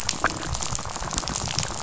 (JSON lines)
{"label": "biophony, rattle", "recorder": "SoundTrap 500"}